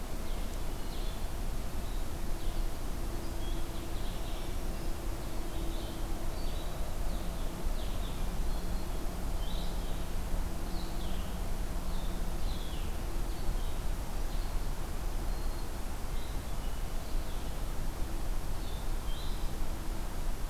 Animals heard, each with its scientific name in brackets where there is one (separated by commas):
Black-throated Green Warbler (Setophaga virens), Red-eyed Vireo (Vireo olivaceus)